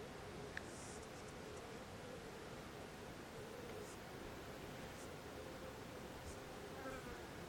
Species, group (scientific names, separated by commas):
Yoyetta humphreyae, Cicadidae